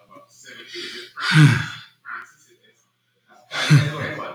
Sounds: Sigh